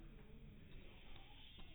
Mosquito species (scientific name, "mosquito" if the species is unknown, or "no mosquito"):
no mosquito